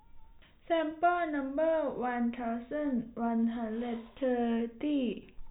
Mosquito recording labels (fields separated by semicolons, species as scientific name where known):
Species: no mosquito; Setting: cup